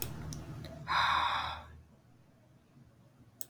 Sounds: Sigh